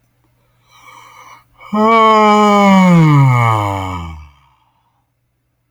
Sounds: Sigh